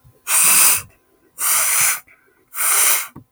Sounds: Sniff